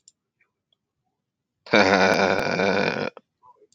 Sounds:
Laughter